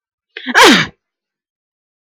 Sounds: Sneeze